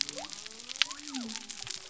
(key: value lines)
label: biophony
recorder: SoundTrap 300